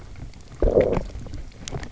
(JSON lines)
{"label": "biophony, low growl", "recorder": "SoundTrap 300"}